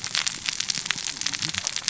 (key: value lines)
label: biophony, cascading saw
recorder: SoundTrap 600 or HydroMoth